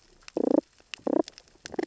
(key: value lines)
label: biophony, damselfish
recorder: SoundTrap 600 or HydroMoth